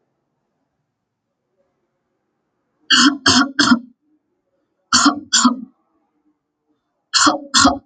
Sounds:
Cough